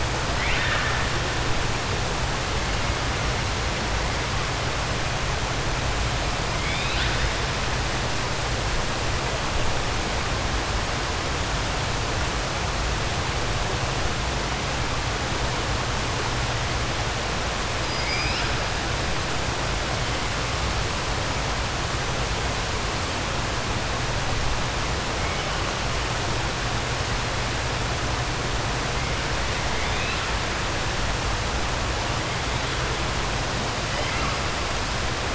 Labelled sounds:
0.3	1.0	killer whale, 1.2 to 4.0 kHz
6.5	7.2	killer whale, 1.5 to 4.9 kHz
29.7	30.2	killer whale, 1.9 to 4.0 kHz

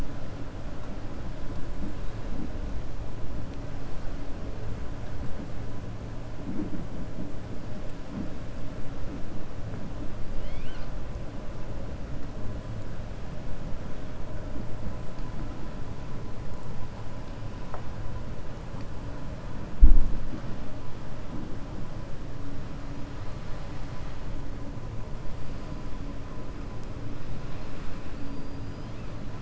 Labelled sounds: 10.3	10.9	killer whale, 1.2 to 5.7 kHz
28.1	28.9	killer whale, 4.2 to 5.0 kHz

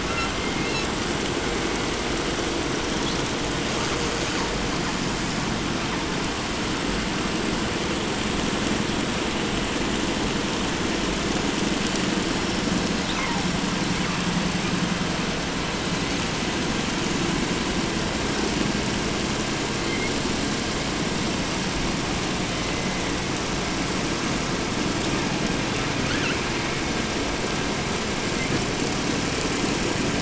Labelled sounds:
0.0	0.3	killer whale, 0.81 to 7.1 kHz
0.6	0.9	killer whale, 1.2 to 6.9 kHz
2.9	3.3	killer whale, 2.7 to 5.7 kHz
4.1	5.0	killer whale, 0.51 to 4.7 kHz
13.0	13.5	killer whale, 0.45 to 4.5 kHz
13.9	14.3	killer whale, 0.64 to 4.2 kHz
19.7	20.2	killer whale, 1.6 to 3.7 kHz
22.3	23.4	killer whale, southern resident, 0.75 to 3.6 kHz
24.9	25.4	killer whale, 0.64 to 8.0 kHz
26.0	26.5	killer whale, 0.90 to 6.9 kHz

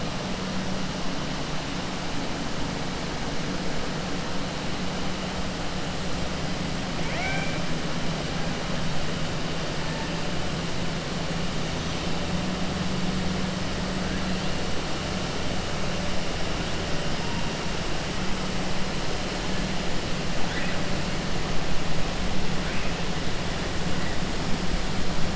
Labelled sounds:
7.0	7.6	killer whale, 0.65 to 3.2 kHz

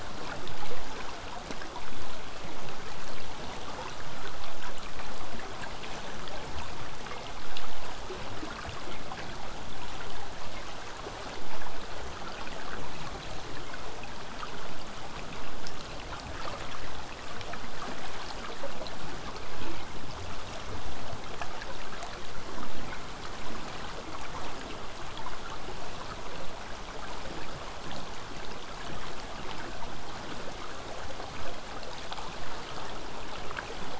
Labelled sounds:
24.4	29.4	vessel noise, 0 to 8.0 kHz

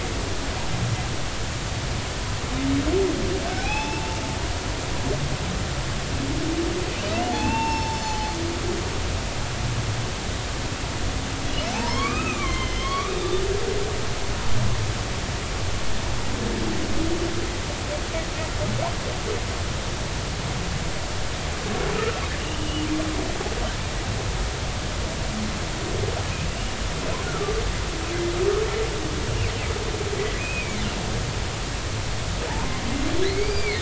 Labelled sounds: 3.5	4.2	humpback whale, 0.80 to 3.6 kHz
7.3	8.3	humpback whale, 0.80 to 5.4 kHz
11.7	13.3	humpback whale, 0.80 to 3.8 kHz
21.9	22.9	humpback whale, 1.2 to 3.1 kHz
27.2	27.6	humpback whale, 1.1 to 1.5 kHz
30.4	30.8	humpback whale, 2.0 to 2.7 kHz
32.5	32.8	humpback whale, 0.80 to 1.1 kHz
33.2	33.7	humpback whale, 1.9 to 4.8 kHz

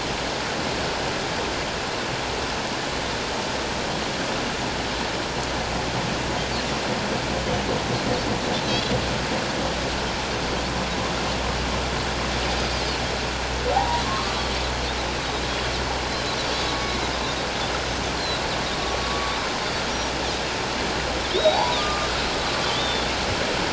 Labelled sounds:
8.7	8.9	Pacific white-sided dolphin, 3.8 to 4.1 kHz
13.7	14.5	humpback whale, 0.78 to 1.3 kHz
16.8	17.1	humpback whale, 2.1 to 2.3 kHz
19.0	19.3	humpback whale, 1.1 to 1.2 kHz
21.3	22.1	humpback whale, 0.78 to 3.9 kHz
22.7	23.1	humpback whale, 3.3 to 3.8 kHz

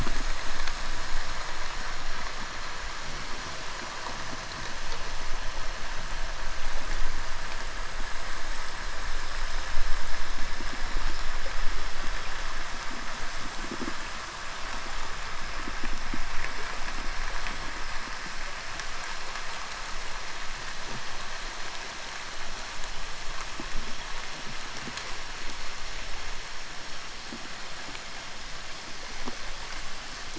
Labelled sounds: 13.4	14.2	fish, 0 to 0.79 kHz

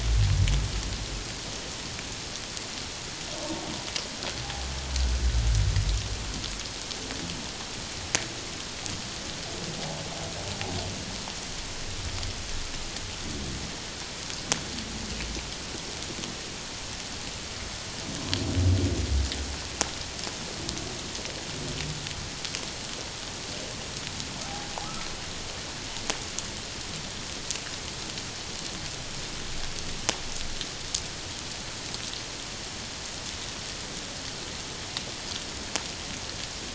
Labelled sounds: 24.8	25.1	humpback whale, 1.1 to 1.4 kHz

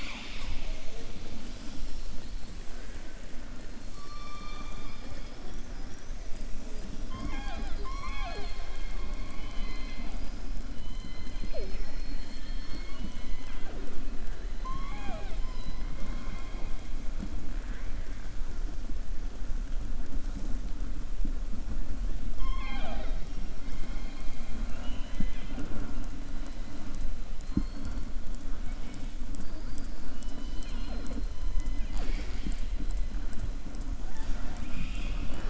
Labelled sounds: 3.9	5.7	killer whale, southern resident, 0.58 to 6.2 kHz
9.2	10.1	killer whale, southern resident, 1.2 to 4.9 kHz
22.3	23.4	killer whale, southern resident, 0.42 to 5.5 kHz

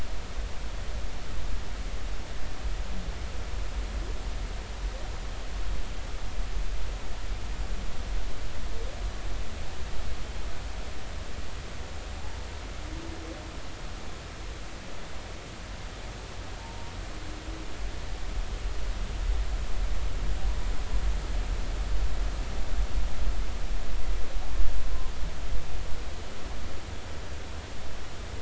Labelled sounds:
16.6	16.9	humpback whale, 0.83 to 0.96 kHz

